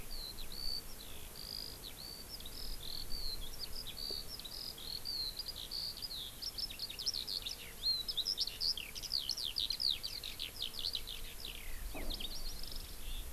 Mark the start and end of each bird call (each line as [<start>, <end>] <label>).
[0.00, 13.29] Eurasian Skylark (Alauda arvensis)